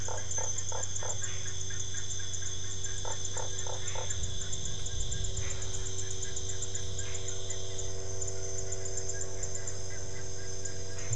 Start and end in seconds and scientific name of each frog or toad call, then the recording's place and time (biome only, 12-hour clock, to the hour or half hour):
0.0	1.2	Boana lundii
0.0	9.7	Dendropsophus cruzi
3.0	4.1	Boana lundii
Cerrado, 7pm